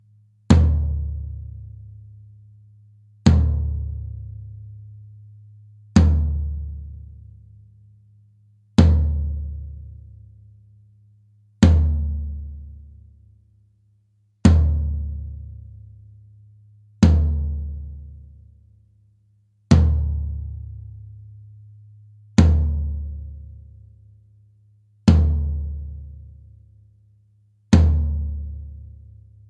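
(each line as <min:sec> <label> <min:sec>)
0:00.4 A drum is struck at regular intervals, producing a steady rhythmic beat that echoes with each hit. 0:29.5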